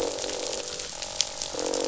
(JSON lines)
{"label": "biophony, croak", "recorder": "SoundTrap 500"}